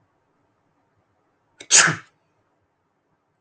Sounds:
Sneeze